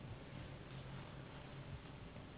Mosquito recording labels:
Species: Anopheles gambiae s.s.; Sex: female; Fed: unfed; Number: one; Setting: insect culture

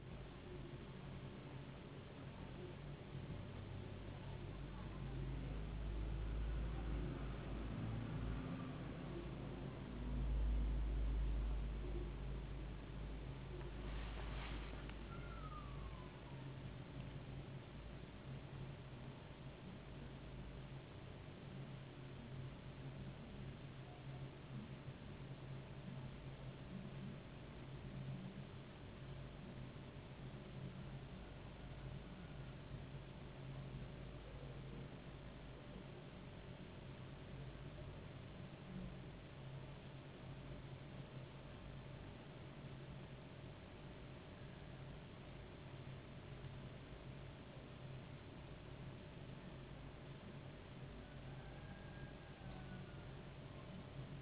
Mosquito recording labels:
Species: no mosquito; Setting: insect culture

